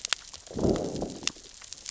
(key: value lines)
label: biophony, growl
recorder: SoundTrap 600 or HydroMoth